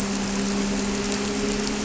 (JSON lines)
{"label": "anthrophony, boat engine", "recorder": "SoundTrap 300"}